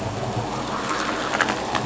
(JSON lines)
{"label": "anthrophony, boat engine", "recorder": "SoundTrap 500"}